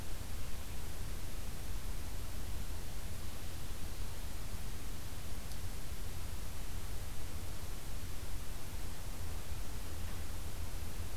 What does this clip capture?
forest ambience